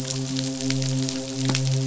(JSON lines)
{"label": "biophony, midshipman", "recorder": "SoundTrap 500"}